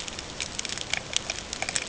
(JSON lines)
{"label": "ambient", "recorder": "HydroMoth"}